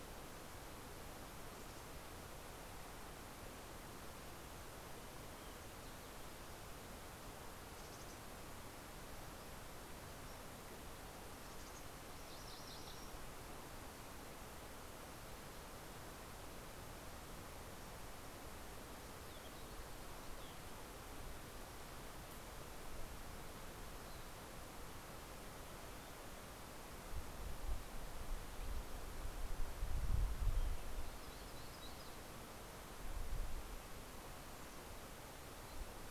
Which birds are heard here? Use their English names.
Mountain Chickadee, MacGillivray's Warbler, Fox Sparrow, Yellow-rumped Warbler